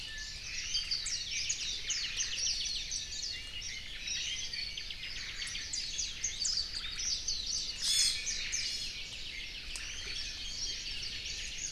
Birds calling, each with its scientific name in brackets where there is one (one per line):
Apapane (Himatione sanguinea)
Iiwi (Drepanis coccinea)
Omao (Myadestes obscurus)
Warbling White-eye (Zosterops japonicus)